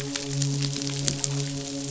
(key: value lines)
label: biophony, midshipman
recorder: SoundTrap 500